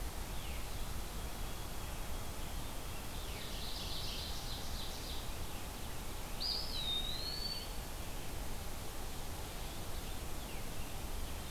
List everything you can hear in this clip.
White-throated Sparrow, Ovenbird, Mourning Warbler, Eastern Wood-Pewee